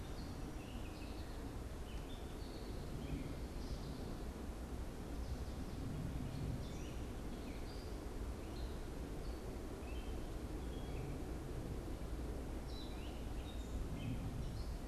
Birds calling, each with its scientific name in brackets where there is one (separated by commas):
American Goldfinch (Spinus tristis), Gray Catbird (Dumetella carolinensis)